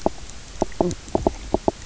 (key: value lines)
label: biophony, knock croak
recorder: SoundTrap 300